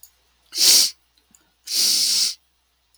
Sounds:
Sniff